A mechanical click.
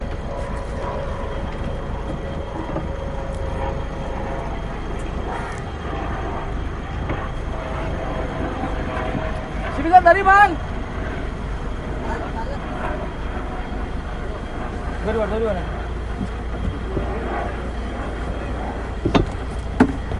0:19.1 0:19.3

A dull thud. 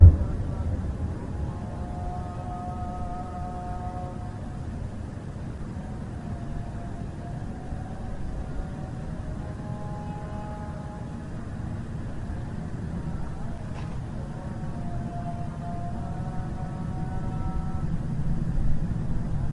0:00.0 0:00.6

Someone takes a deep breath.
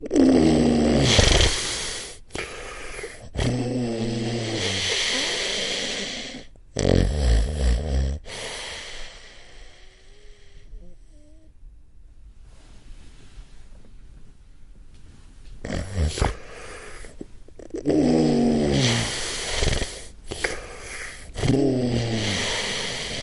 0:02.3 0:03.3, 0:20.3 0:21.3

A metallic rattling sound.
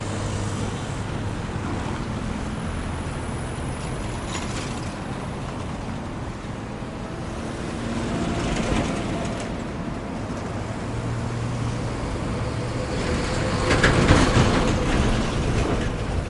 0:08.4 0:09.7, 0:13.6 0:15.4

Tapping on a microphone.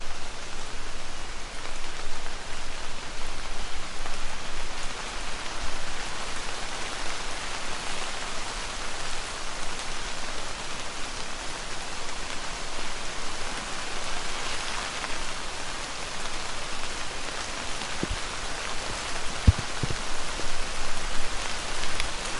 0:19.4 0:19.6

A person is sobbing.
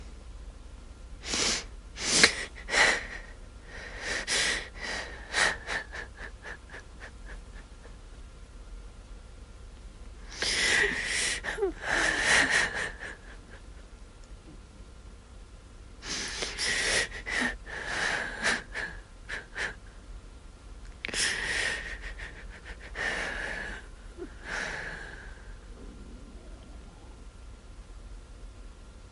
0:01.2 0:08.0, 0:10.3 0:13.1, 0:16.0 0:19.9, 0:21.0 0:25.8

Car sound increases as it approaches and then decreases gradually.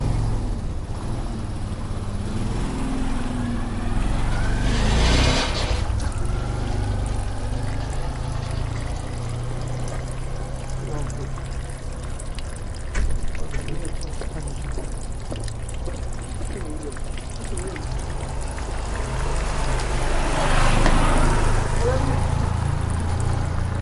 0:00.0 0:10.3, 0:19.1 0:23.8

